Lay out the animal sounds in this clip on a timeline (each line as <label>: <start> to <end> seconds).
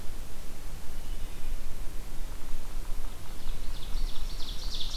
Wood Thrush (Hylocichla mustelina): 0.9 to 1.7 seconds
Ovenbird (Seiurus aurocapilla): 3.2 to 5.0 seconds
Black-throated Green Warbler (Setophaga virens): 3.9 to 5.0 seconds